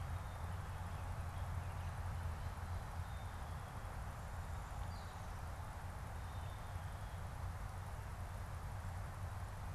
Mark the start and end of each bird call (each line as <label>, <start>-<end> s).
Gray Catbird (Dumetella carolinensis), 4.8-5.2 s
Black-capped Chickadee (Poecile atricapillus), 6.0-7.3 s